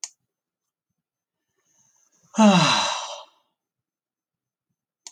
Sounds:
Sigh